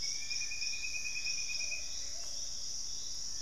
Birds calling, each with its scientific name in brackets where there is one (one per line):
Gray Antbird (Cercomacra cinerascens)
Plumbeous Pigeon (Patagioenas plumbea)